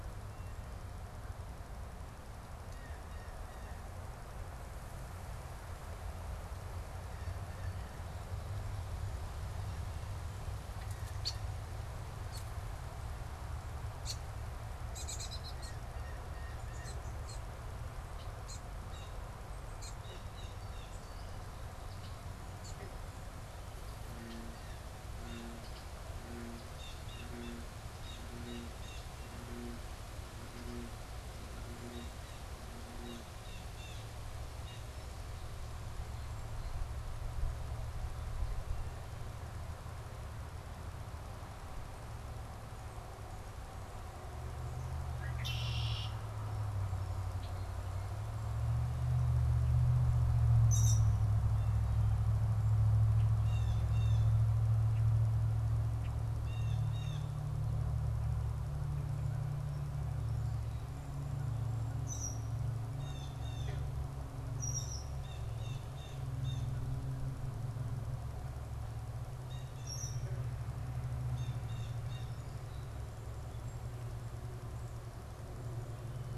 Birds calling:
Blue Jay (Cyanocitta cristata), Red-winged Blackbird (Agelaius phoeniceus)

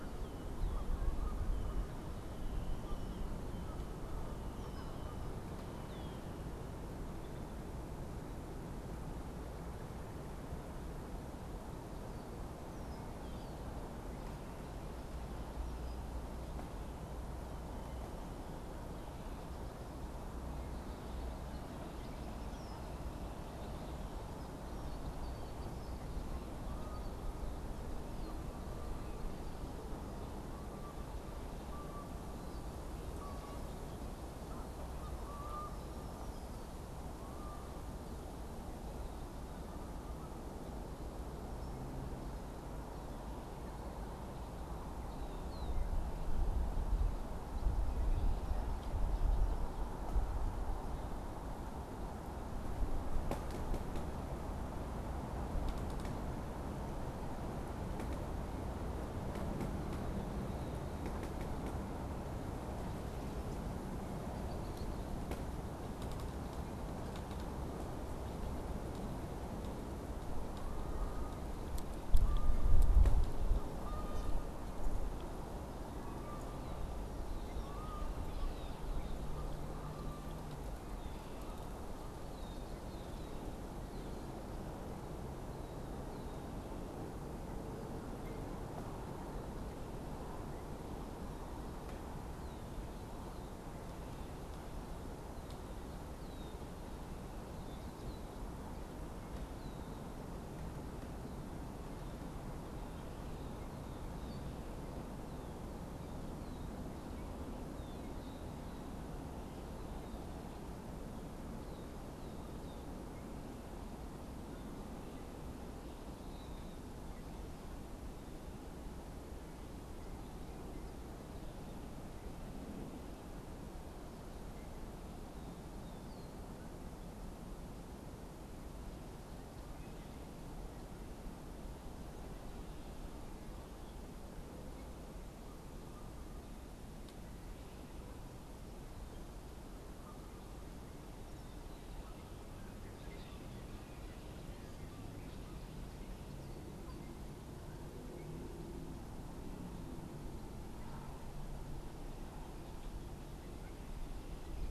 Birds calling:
Canada Goose (Branta canadensis), Red-winged Blackbird (Agelaius phoeniceus)

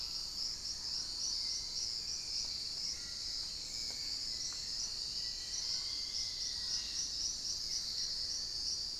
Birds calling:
Dusky-throated Antshrike (Thamnomanes ardesiacus), Gray Antwren (Myrmotherula menetriesii), Buff-throated Woodcreeper (Xiphorhynchus guttatus), Hauxwell's Thrush (Turdus hauxwelli), Black-faced Antthrush (Formicarius analis), Musician Wren (Cyphorhinus arada)

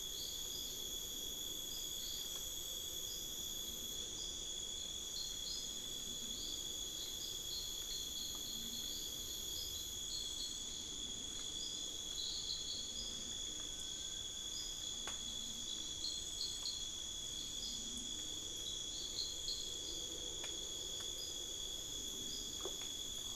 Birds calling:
Little Tinamou (Crypturellus soui)

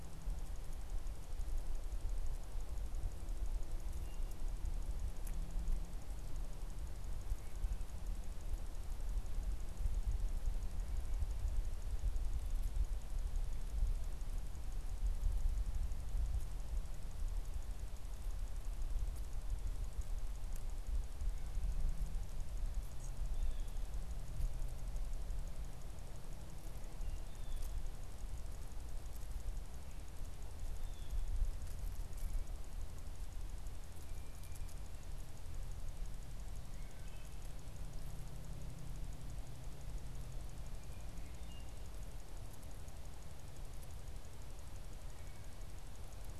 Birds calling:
Blue Jay (Cyanocitta cristata), Wood Thrush (Hylocichla mustelina)

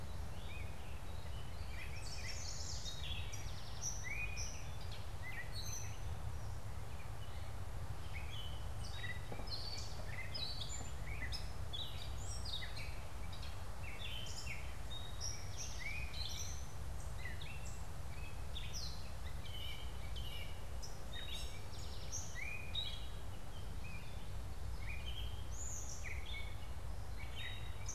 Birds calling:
Chestnut-sided Warbler (Setophaga pensylvanica), Eastern Towhee (Pipilo erythrophthalmus), Gray Catbird (Dumetella carolinensis)

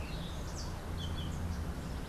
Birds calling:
Yellow-throated Euphonia (Euphonia hirundinacea), Orange-billed Nightingale-Thrush (Catharus aurantiirostris)

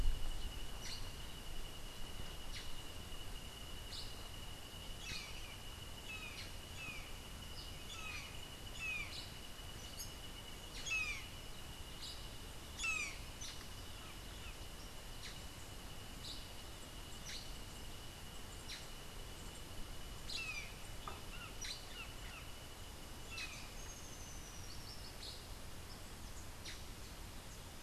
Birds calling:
Rufous-tailed Hummingbird (Amazilia tzacatl), Brown Jay (Psilorhinus morio), Black-headed Saltator (Saltator atriceps)

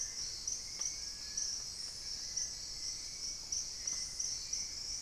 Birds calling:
Long-billed Woodcreeper (Nasica longirostris), Hauxwell's Thrush (Turdus hauxwelli)

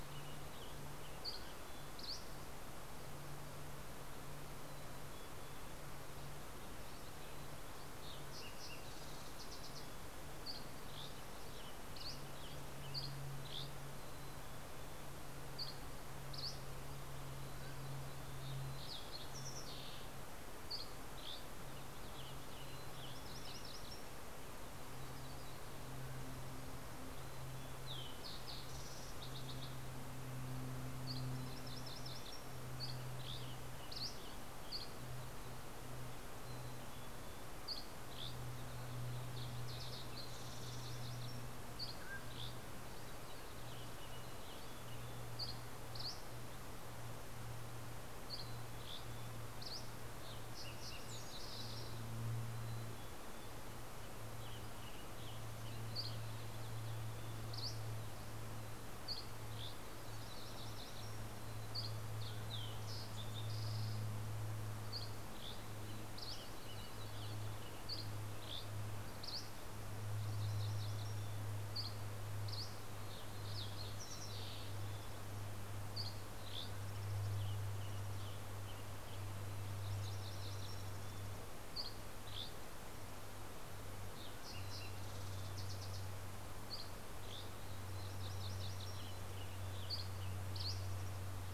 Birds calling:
Western Tanager (Piranga ludoviciana), Mountain Chickadee (Poecile gambeli), Fox Sparrow (Passerella iliaca), Mountain Quail (Oreortyx pictus), Dusky Flycatcher (Empidonax oberholseri), MacGillivray's Warbler (Geothlypis tolmiei)

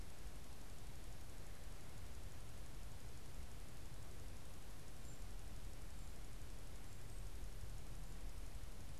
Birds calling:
unidentified bird

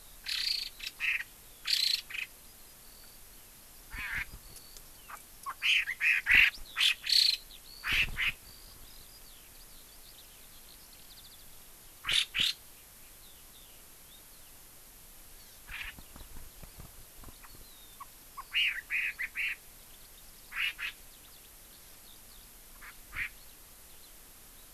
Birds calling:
Chinese Hwamei (Garrulax canorus), Eurasian Skylark (Alauda arvensis)

